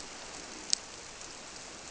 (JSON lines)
{"label": "biophony", "recorder": "SoundTrap 300"}